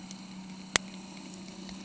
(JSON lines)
{"label": "anthrophony, boat engine", "recorder": "HydroMoth"}